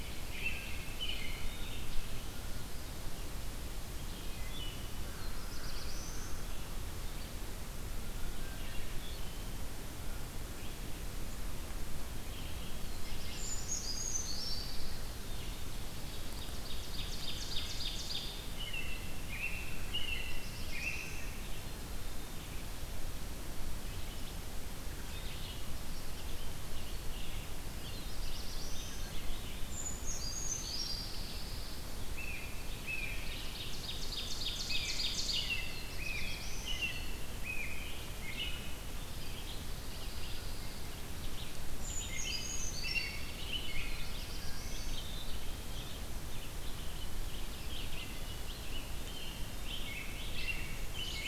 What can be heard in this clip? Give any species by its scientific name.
Turdus migratorius, Vireo olivaceus, Poecile atricapillus, Setophaga caerulescens, Corvus brachyrhynchos, Hylocichla mustelina, Certhia americana, Seiurus aurocapilla, Setophaga pinus, Mniotilta varia